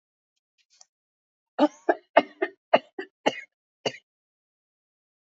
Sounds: Cough